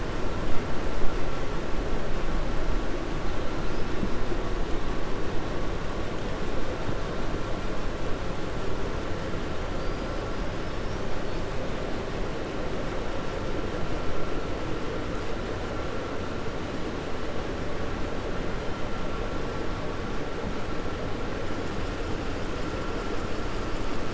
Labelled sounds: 9.7	10.1	killer whale, 4.6 to 5.0 kHz

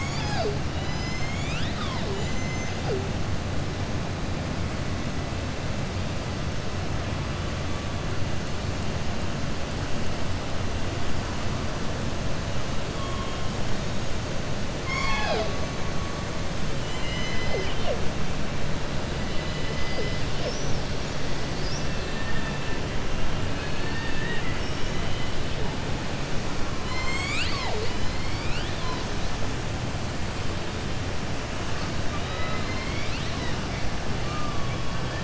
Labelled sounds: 2.0	2.8	killer whale, southern resident, 5.2 to 7.2 kHz
14.7	15.5	killer whale, southern resident, 0.46 to 7.6 kHz
20.3	20.8	killer whale, southern resident, 4.4 to 6.4 kHz
23.5	24.7	killer whale, southern resident, 0.92 to 4.6 kHz
32.1	33.6	killer whale, southern resident, 0.97 to 5.5 kHz

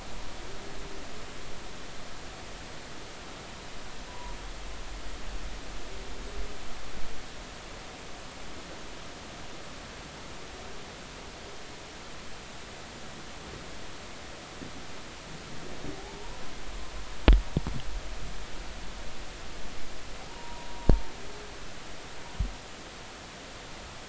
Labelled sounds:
4.1	4.4	humpback whale, 0.93 to 1.1 kHz
15.9	16.3	humpback whale, 0.80 to 0.99 kHz
20.3	20.7	humpback whale, 0.90 to 1.0 kHz

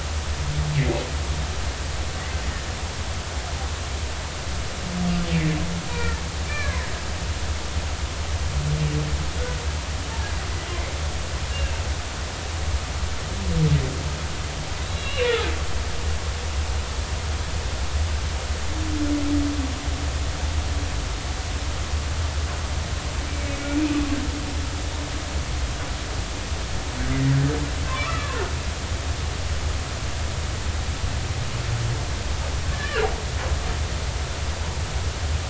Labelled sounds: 5.9	6.9	humpback whale, 1.6 to 2.4 kHz
11.5	11.8	humpback whale, 2.6 to 2.8 kHz
14.8	15.4	humpback whale, 2.6 to 4.0 kHz
23.3	23.6	humpback whale, 2.2 to 2.4 kHz
27.9	28.4	humpback whale, 0.99 to 1.4 kHz
32.7	33.1	humpback whale, 1.3 to 1.9 kHz

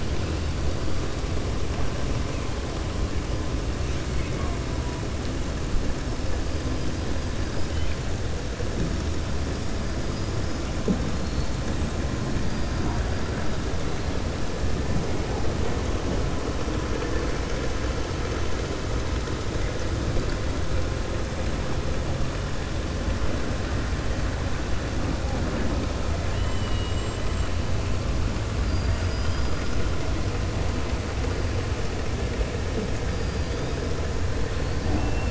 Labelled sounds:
26.3	27.5	killer whale, 1.9 to 8.0 kHz
28.6	29.8	killer whale, 3.1 to 5.1 kHz

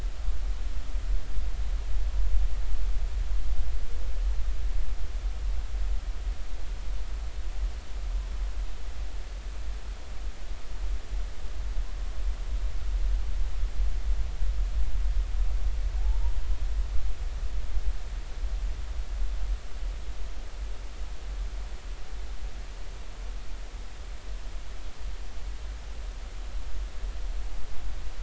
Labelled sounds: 16.0	16.3	humpback whale, 0.80 to 1.0 kHz

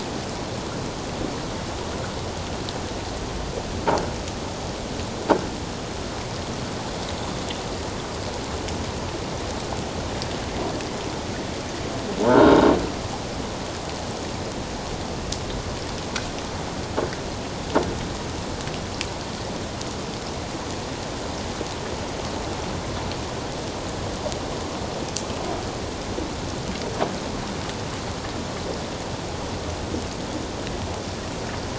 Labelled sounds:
12.2	12.6	croaking sound likely from a nearby submerged object, 0.84 to 1.6 kHz

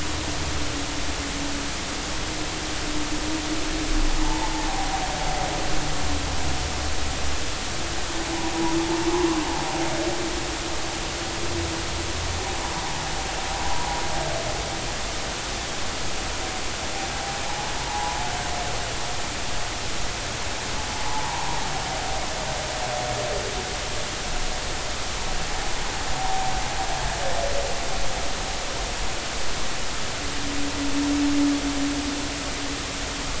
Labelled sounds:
4.2	4.5	humpback whale, 0.80 to 1.1 kHz
5.7	6.0	humpback whale, 0.80 to 0.86 kHz
17.5	18.2	humpback whale, 0.80 to 1.1 kHz
21.1	21.6	humpback whale, 0.80 to 1.1 kHz
26.2	26.5	humpback whale, 0.80 to 1.0 kHz

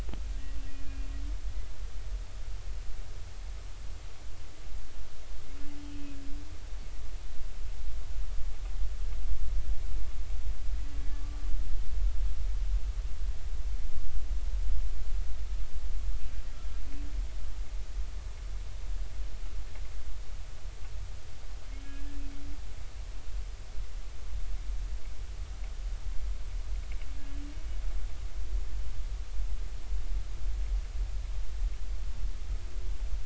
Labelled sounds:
5.8	6.2	humpback whale, 2.5 to 3.2 kHz
11.1	11.4	humpback whale, 1.1 to 1.2 kHz
21.8	22.2	humpback whale, 1.6 to 2.6 kHz

